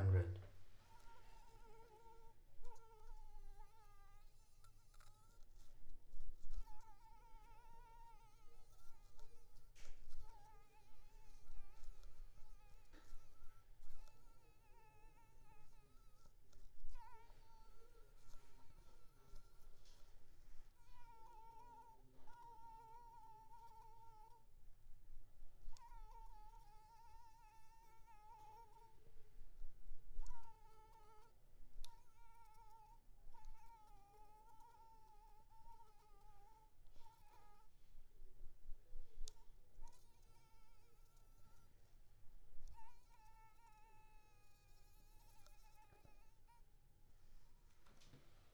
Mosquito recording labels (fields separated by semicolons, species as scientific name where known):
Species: Anopheles arabiensis; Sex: female; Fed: unfed; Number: one; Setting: cup